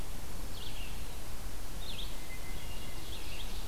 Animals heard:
Ovenbird (Seiurus aurocapilla), Hermit Thrush (Catharus guttatus), Red-eyed Vireo (Vireo olivaceus)

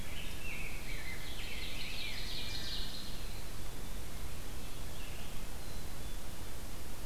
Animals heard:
Ovenbird (Seiurus aurocapilla), Rose-breasted Grosbeak (Pheucticus ludovicianus)

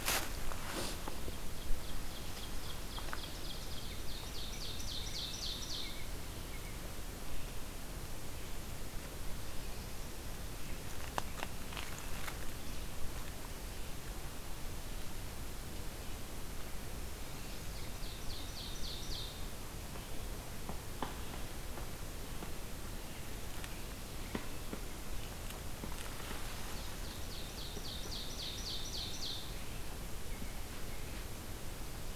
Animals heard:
Ovenbird (Seiurus aurocapilla), American Robin (Turdus migratorius)

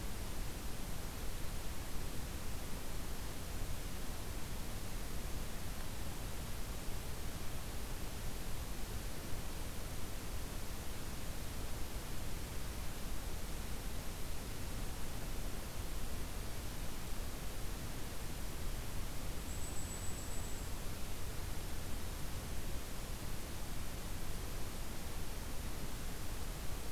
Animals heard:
Golden-crowned Kinglet (Regulus satrapa)

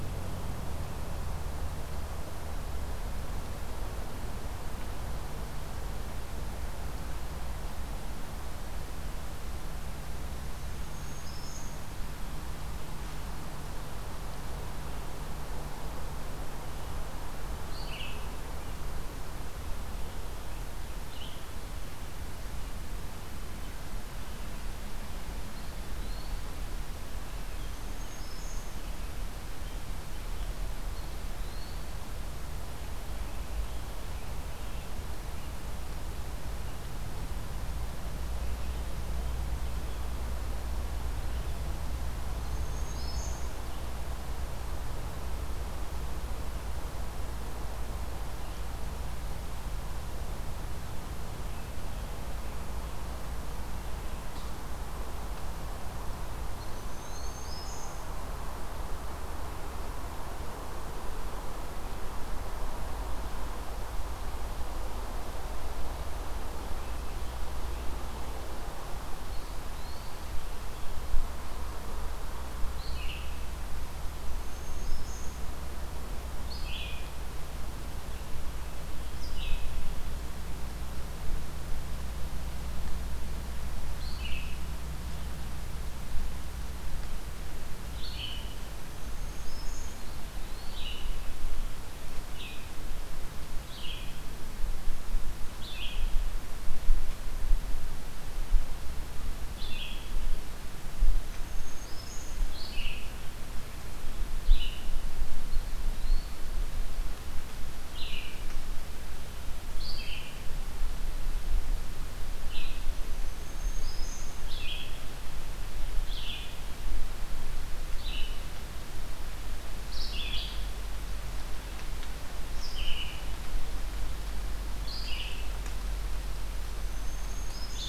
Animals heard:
Eastern Wood-Pewee (Contopus virens), Black-throated Green Warbler (Setophaga virens), Red-eyed Vireo (Vireo olivaceus)

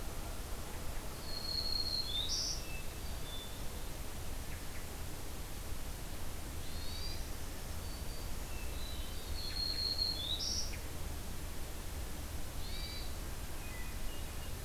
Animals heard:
Black-throated Green Warbler (Setophaga virens), Hermit Thrush (Catharus guttatus)

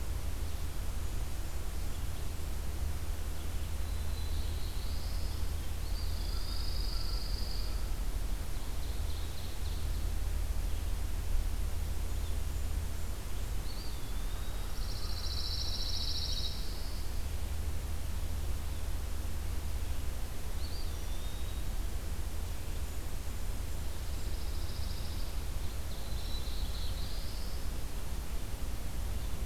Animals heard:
Blackburnian Warbler (Setophaga fusca), Common Raven (Corvus corax), Ovenbird (Seiurus aurocapilla), Eastern Wood-Pewee (Contopus virens), Pine Warbler (Setophaga pinus), Black-throated Blue Warbler (Setophaga caerulescens)

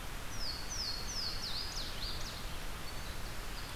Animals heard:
Louisiana Waterthrush (Parkesia motacilla), Winter Wren (Troglodytes hiemalis)

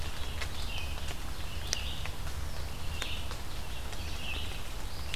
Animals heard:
Red-eyed Vireo (Vireo olivaceus)

